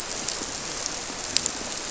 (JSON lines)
{"label": "biophony", "recorder": "SoundTrap 300"}